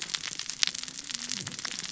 {"label": "biophony, cascading saw", "recorder": "SoundTrap 600 or HydroMoth"}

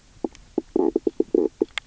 {"label": "biophony, knock croak", "recorder": "SoundTrap 300"}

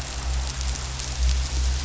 {"label": "anthrophony, boat engine", "recorder": "SoundTrap 500"}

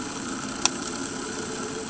{"label": "anthrophony, boat engine", "recorder": "HydroMoth"}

